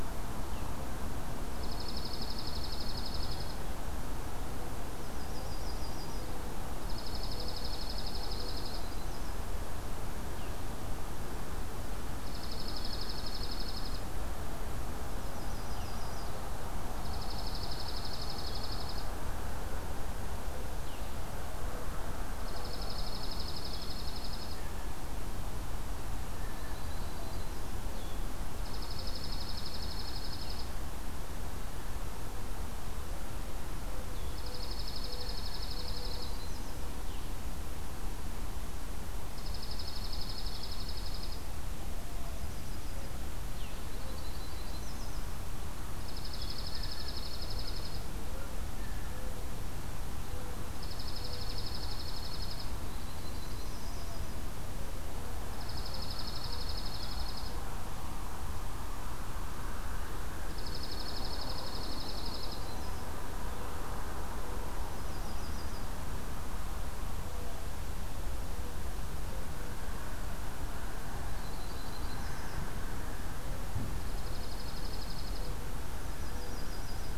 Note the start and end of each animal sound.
1.4s-3.6s: Dark-eyed Junco (Junco hyemalis)
5.0s-6.2s: Yellow-rumped Warbler (Setophaga coronata)
6.8s-8.9s: Dark-eyed Junco (Junco hyemalis)
8.7s-9.4s: Yellow-rumped Warbler (Setophaga coronata)
10.3s-10.7s: Blue-headed Vireo (Vireo solitarius)
12.1s-14.1s: Dark-eyed Junco (Junco hyemalis)
15.2s-16.5s: Yellow-rumped Warbler (Setophaga coronata)
15.6s-16.1s: Blue-headed Vireo (Vireo solitarius)
17.0s-19.2s: Dark-eyed Junco (Junco hyemalis)
20.8s-21.1s: Blue-headed Vireo (Vireo solitarius)
22.3s-24.6s: Dark-eyed Junco (Junco hyemalis)
26.4s-27.6s: Yellow-rumped Warbler (Setophaga coronata)
27.9s-28.2s: Blue-headed Vireo (Vireo solitarius)
28.6s-30.8s: Dark-eyed Junco (Junco hyemalis)
34.0s-34.5s: Blue-headed Vireo (Vireo solitarius)
34.2s-36.4s: Dark-eyed Junco (Junco hyemalis)
36.1s-36.9s: Yellow-rumped Warbler (Setophaga coronata)
36.9s-37.3s: Blue-headed Vireo (Vireo solitarius)
39.3s-41.4s: Dark-eyed Junco (Junco hyemalis)
42.2s-43.2s: Yellow-rumped Warbler (Setophaga coronata)
43.5s-43.9s: Blue-headed Vireo (Vireo solitarius)
43.9s-45.3s: Yellow-rumped Warbler (Setophaga coronata)
45.9s-48.1s: Dark-eyed Junco (Junco hyemalis)
46.1s-46.6s: Blue-headed Vireo (Vireo solitarius)
46.6s-47.3s: Blue Jay (Cyanocitta cristata)
48.7s-49.4s: Blue Jay (Cyanocitta cristata)
50.7s-52.8s: Dark-eyed Junco (Junco hyemalis)
52.9s-54.4s: Yellow-rumped Warbler (Setophaga coronata)
55.5s-57.6s: Dark-eyed Junco (Junco hyemalis)
60.4s-62.6s: Dark-eyed Junco (Junco hyemalis)
62.5s-63.1s: Yellow-rumped Warbler (Setophaga coronata)
64.8s-65.9s: Yellow-rumped Warbler (Setophaga coronata)
71.2s-72.6s: Yellow-rumped Warbler (Setophaga coronata)
73.9s-75.6s: Dark-eyed Junco (Junco hyemalis)
75.9s-77.2s: Yellow-rumped Warbler (Setophaga coronata)

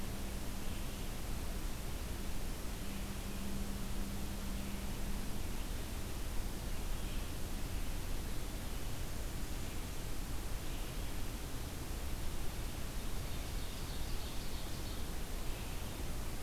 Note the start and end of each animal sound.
12.9s-15.1s: Ovenbird (Seiurus aurocapilla)

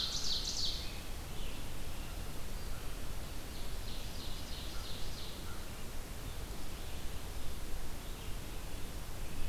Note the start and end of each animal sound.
0.0s-1.0s: Ovenbird (Seiurus aurocapilla)
0.0s-9.5s: Red-eyed Vireo (Vireo olivaceus)
0.7s-1.7s: American Robin (Turdus migratorius)
3.4s-5.5s: Ovenbird (Seiurus aurocapilla)

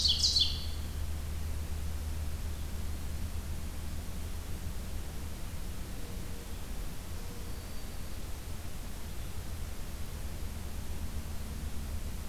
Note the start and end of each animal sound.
0.0s-0.8s: Ovenbird (Seiurus aurocapilla)
7.1s-8.3s: Black-throated Green Warbler (Setophaga virens)

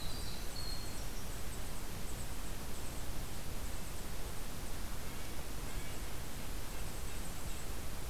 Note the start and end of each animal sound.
0.0s-1.4s: Winter Wren (Troglodytes hiemalis)
0.0s-7.9s: Golden-crowned Kinglet (Regulus satrapa)
4.9s-7.3s: Red-breasted Nuthatch (Sitta canadensis)

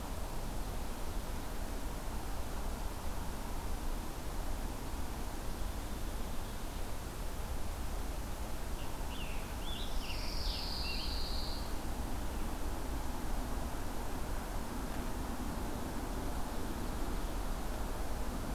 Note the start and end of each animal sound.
8.8s-11.2s: Scarlet Tanager (Piranga olivacea)
9.9s-11.7s: Pine Warbler (Setophaga pinus)

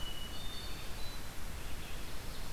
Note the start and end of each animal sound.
0.0s-2.5s: Red-eyed Vireo (Vireo olivaceus)
0.0s-1.2s: Hermit Thrush (Catharus guttatus)
1.5s-2.5s: Ovenbird (Seiurus aurocapilla)

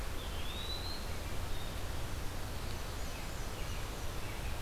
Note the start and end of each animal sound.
0.1s-1.0s: Eastern Wood-Pewee (Contopus virens)
2.5s-4.2s: Black-and-white Warbler (Mniotilta varia)
3.1s-4.6s: American Robin (Turdus migratorius)

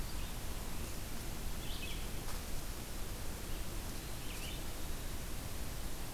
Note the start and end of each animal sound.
0.0s-6.1s: Red-eyed Vireo (Vireo olivaceus)

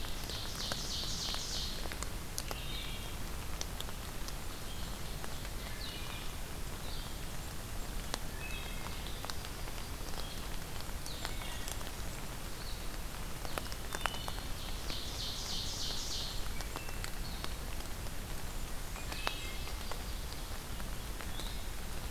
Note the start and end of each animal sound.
0.0s-1.9s: Ovenbird (Seiurus aurocapilla)
0.0s-11.4s: Blue-headed Vireo (Vireo solitarius)
2.5s-3.2s: Wood Thrush (Hylocichla mustelina)
5.7s-6.4s: Wood Thrush (Hylocichla mustelina)
8.3s-9.2s: Wood Thrush (Hylocichla mustelina)
8.6s-10.1s: Yellow-rumped Warbler (Setophaga coronata)
11.0s-12.4s: Blackburnian Warbler (Setophaga fusca)
11.2s-11.9s: Wood Thrush (Hylocichla mustelina)
12.4s-22.1s: Blue-headed Vireo (Vireo solitarius)
13.7s-14.5s: Wood Thrush (Hylocichla mustelina)
14.2s-16.5s: Ovenbird (Seiurus aurocapilla)
16.3s-17.2s: Wood Thrush (Hylocichla mustelina)
18.1s-19.6s: Blackburnian Warbler (Setophaga fusca)
18.9s-19.9s: Wood Thrush (Hylocichla mustelina)

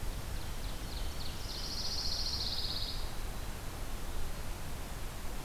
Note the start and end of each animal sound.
0.0s-1.8s: Ovenbird (Seiurus aurocapilla)
1.3s-3.2s: Pine Warbler (Setophaga pinus)

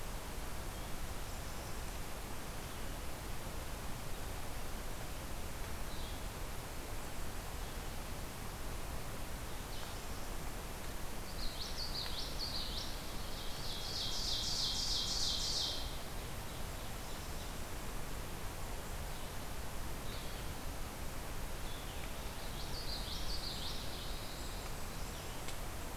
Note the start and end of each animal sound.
5.8s-6.2s: Blue-headed Vireo (Vireo solitarius)
11.1s-13.0s: Common Yellowthroat (Geothlypis trichas)
13.3s-17.7s: Ovenbird (Seiurus aurocapilla)
21.3s-25.4s: Winter Wren (Troglodytes hiemalis)
22.4s-24.0s: Common Yellowthroat (Geothlypis trichas)

